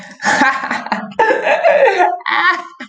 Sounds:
Laughter